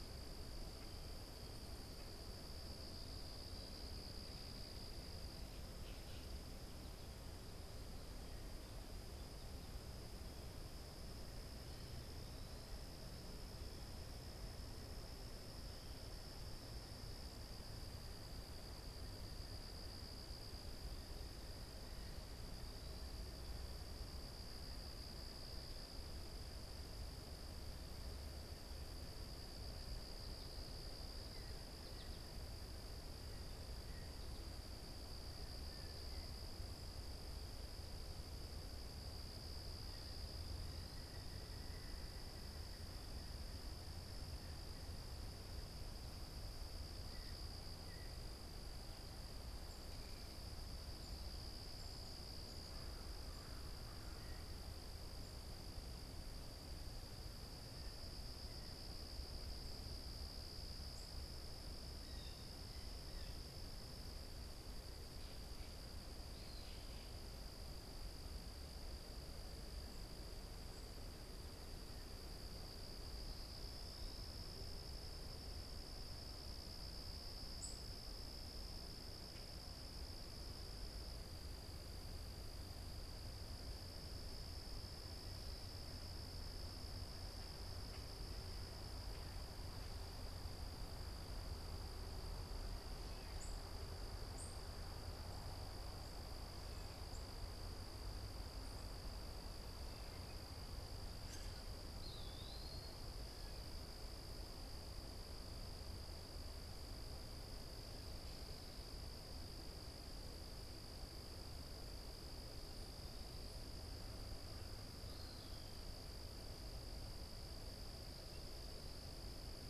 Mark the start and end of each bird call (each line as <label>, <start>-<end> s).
Blue Jay (Cyanocitta cristata), 31.0-36.9 s
American Goldfinch (Spinus tristis), 31.4-32.5 s
Blue Jay (Cyanocitta cristata), 46.8-48.5 s
American Crow (Corvus brachyrhynchos), 52.3-54.6 s
Blue Jay (Cyanocitta cristata), 61.9-63.6 s
unidentified bird, 77.4-77.9 s
unidentified bird, 93.2-94.7 s
unidentified bird, 101.2-101.7 s
Eastern Wood-Pewee (Contopus virens), 101.8-103.1 s